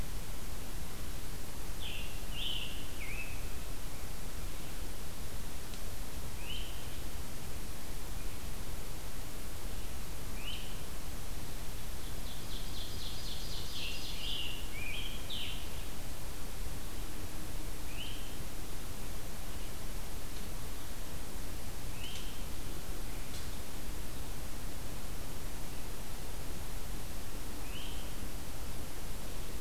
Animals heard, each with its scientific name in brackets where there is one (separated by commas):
Ovenbird (Seiurus aurocapilla), Scarlet Tanager (Piranga olivacea)